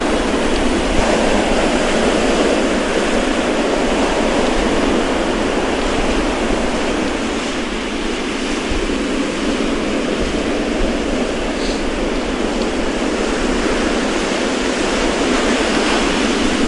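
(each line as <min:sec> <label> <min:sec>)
0:00.0 Loud repetitive sound of ocean waves. 0:16.7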